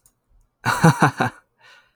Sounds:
Laughter